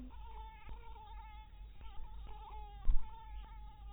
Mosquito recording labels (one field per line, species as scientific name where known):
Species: mosquito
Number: one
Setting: cup